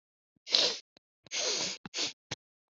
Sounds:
Sniff